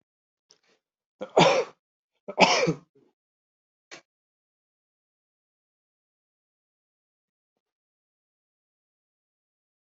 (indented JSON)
{
  "expert_labels": [
    {
      "quality": "good",
      "cough_type": "dry",
      "dyspnea": false,
      "wheezing": false,
      "stridor": false,
      "choking": false,
      "congestion": false,
      "nothing": true,
      "diagnosis": "upper respiratory tract infection",
      "severity": "unknown"
    }
  ],
  "age": 41,
  "gender": "male",
  "respiratory_condition": false,
  "fever_muscle_pain": false,
  "status": "COVID-19"
}